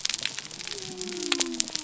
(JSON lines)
{"label": "biophony", "recorder": "SoundTrap 300"}